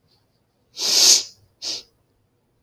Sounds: Sniff